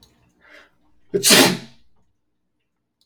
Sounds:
Sneeze